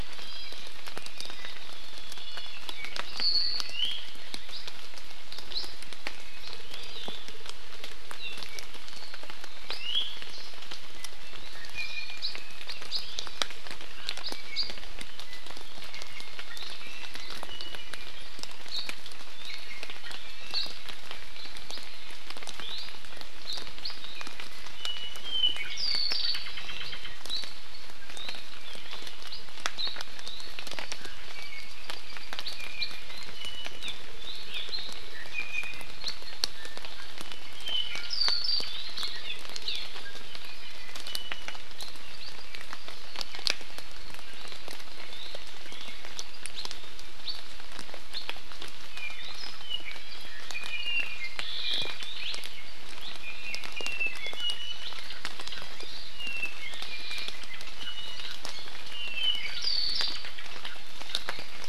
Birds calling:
Apapane (Himatione sanguinea), Hawaii Amakihi (Chlorodrepanis virens), Iiwi (Drepanis coccinea)

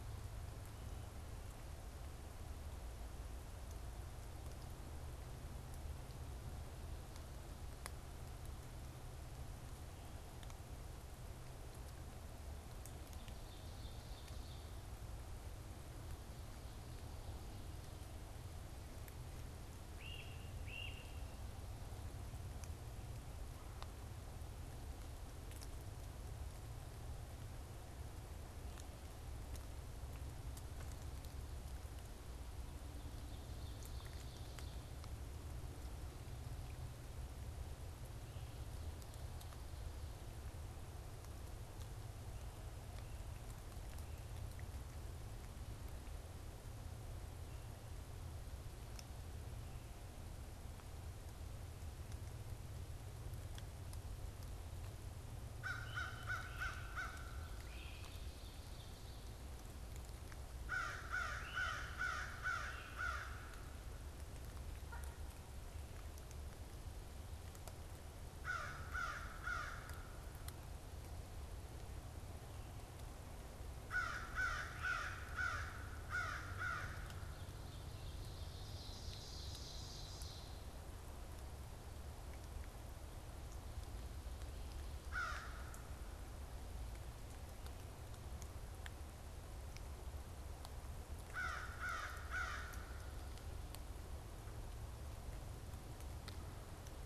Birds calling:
Ovenbird (Seiurus aurocapilla), American Crow (Corvus brachyrhynchos), Great Crested Flycatcher (Myiarchus crinitus)

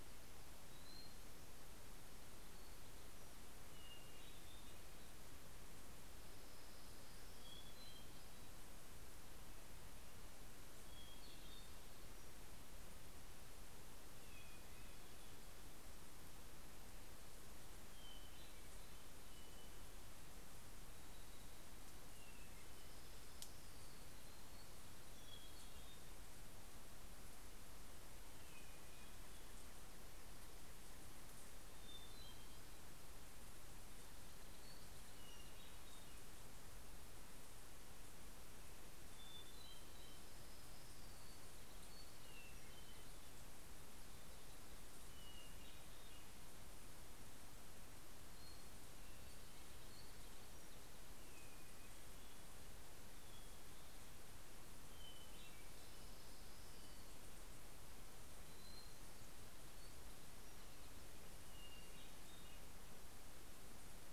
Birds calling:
Hermit Warbler (Setophaga occidentalis), Hermit Thrush (Catharus guttatus), Orange-crowned Warbler (Leiothlypis celata)

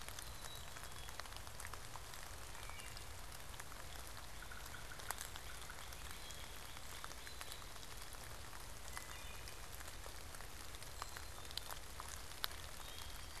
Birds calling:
Wood Thrush (Hylocichla mustelina), Northern Cardinal (Cardinalis cardinalis), Yellow-bellied Sapsucker (Sphyrapicus varius), Black-capped Chickadee (Poecile atricapillus)

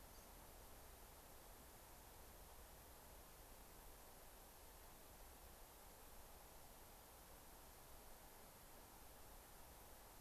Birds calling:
unidentified bird

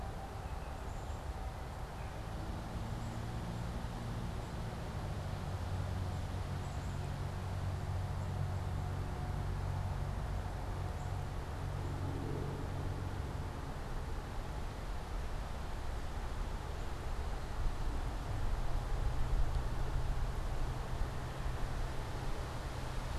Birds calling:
Black-capped Chickadee (Poecile atricapillus), Baltimore Oriole (Icterus galbula)

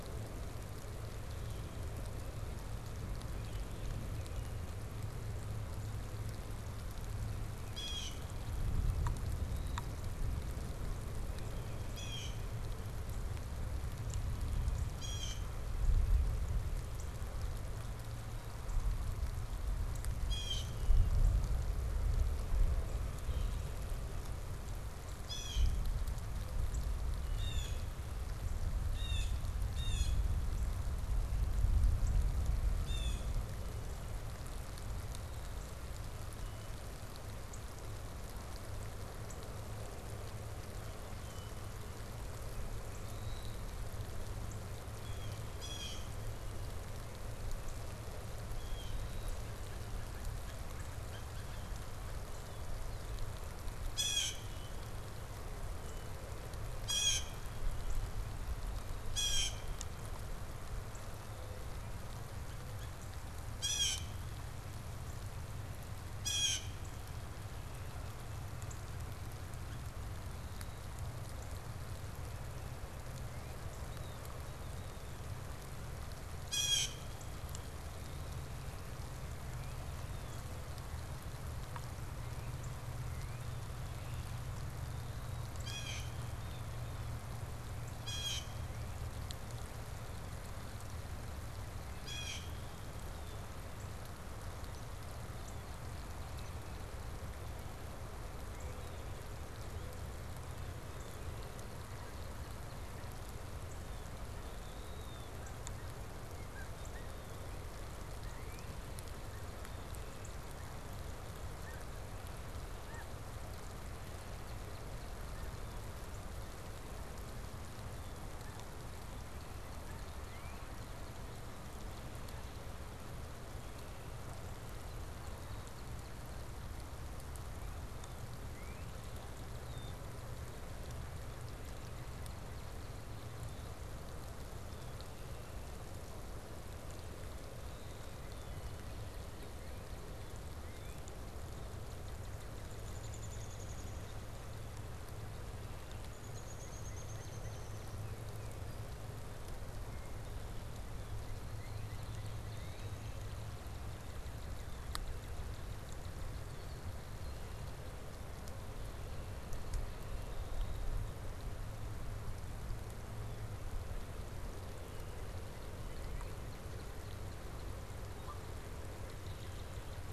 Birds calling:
Canada Goose (Branta canadensis), Blue Jay (Cyanocitta cristata), Downy Woodpecker (Dryobates pubescens), Northern Cardinal (Cardinalis cardinalis), Red-winged Blackbird (Agelaius phoeniceus)

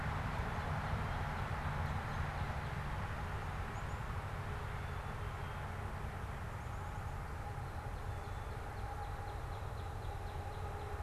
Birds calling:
Northern Cardinal (Cardinalis cardinalis), Black-capped Chickadee (Poecile atricapillus)

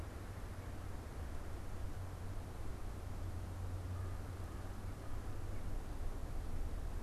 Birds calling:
American Crow (Corvus brachyrhynchos)

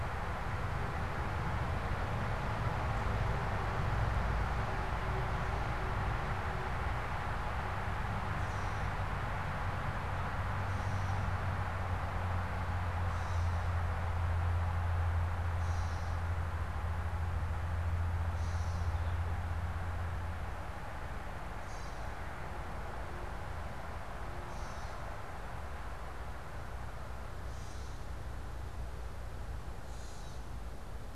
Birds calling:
Gray Catbird (Dumetella carolinensis)

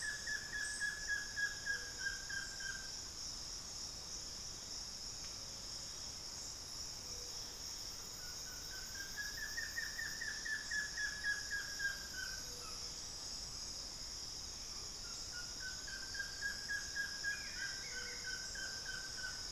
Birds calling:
Hauxwell's Thrush (Turdus hauxwelli), Buff-throated Woodcreeper (Xiphorhynchus guttatus)

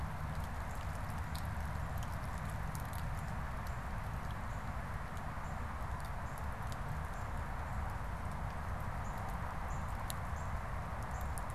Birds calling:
Northern Cardinal (Cardinalis cardinalis)

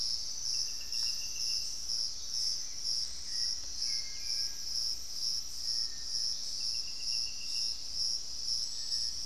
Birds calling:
Hauxwell's Thrush (Turdus hauxwelli), Collared Trogon (Trogon collaris)

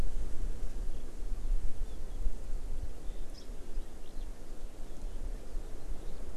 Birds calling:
Eurasian Skylark (Alauda arvensis), Hawaii Amakihi (Chlorodrepanis virens)

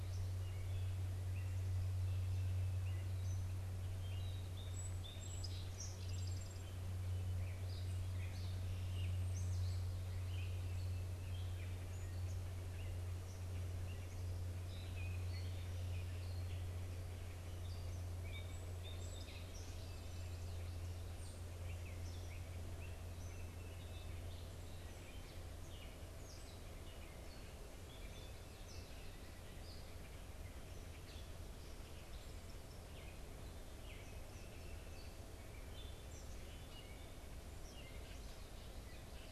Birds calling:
Song Sparrow (Melospiza melodia), Gray Catbird (Dumetella carolinensis), Eastern Kingbird (Tyrannus tyrannus)

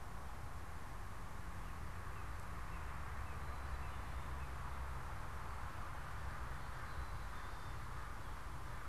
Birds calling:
Northern Cardinal (Cardinalis cardinalis), American Crow (Corvus brachyrhynchos)

